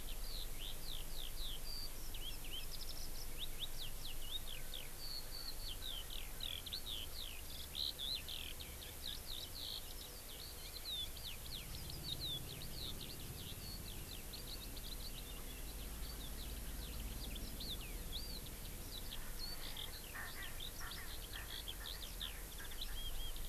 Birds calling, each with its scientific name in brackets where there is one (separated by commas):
Erckel's Francolin (Pternistis erckelii), Eurasian Skylark (Alauda arvensis)